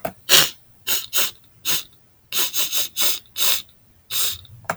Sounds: Sniff